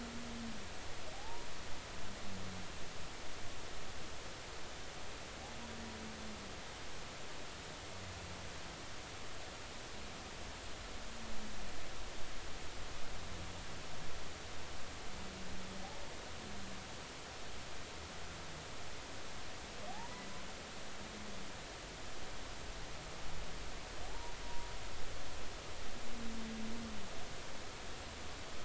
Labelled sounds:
1.1	1.5	humpback whale, 0.80 to 1.1 kHz
19.9	20.2	humpback whale, 0.80 to 1.1 kHz
24.1	24.7	humpback whale, 0.80 to 0.99 kHz

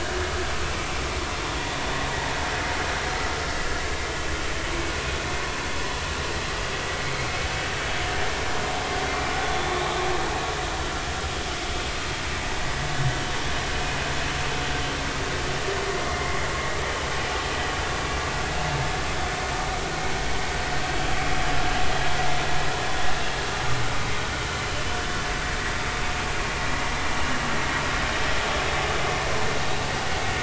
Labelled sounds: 2.1	2.3	vessel noise, 0.83 to 0.99 kHz
9.4	9.7	vessel noise, 3.4 to 3.6 kHz
16.0	16.4	vessel noise, 2.0 to 2.1 kHz

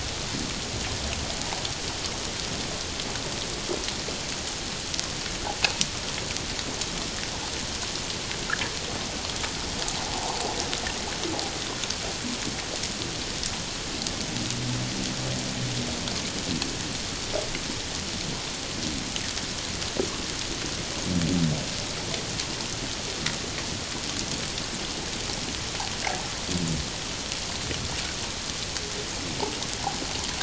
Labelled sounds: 10.0	10.4	water noise, 0.78 to 1.1 kHz

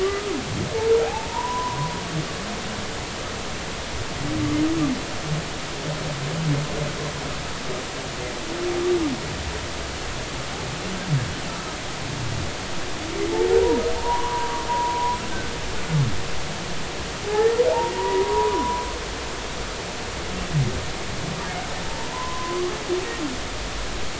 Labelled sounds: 0.0	1.8	humpback whale, 0.80 to 1.3 kHz
14.0	15.2	humpback whale, 0.86 to 1.2 kHz
17.2	17.6	humpback whale, 0.80 to 1.9 kHz
17.9	18.9	humpback whale, 0.83 to 1.2 kHz
21.9	22.7	humpback whale, 0.86 to 1.2 kHz

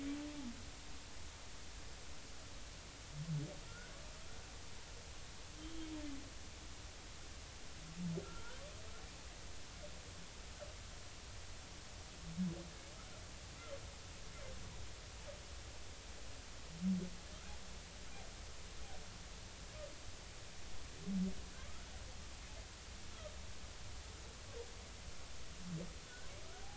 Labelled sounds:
3.7	3.9	humpback whale, 1.3 to 1.6 kHz
8.2	8.6	humpback whale, 1.3 to 1.6 kHz

